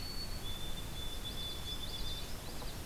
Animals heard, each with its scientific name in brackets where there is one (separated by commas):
White-throated Sparrow (Zonotrichia albicollis), Common Yellowthroat (Geothlypis trichas)